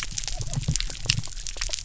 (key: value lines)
label: biophony
recorder: SoundTrap 300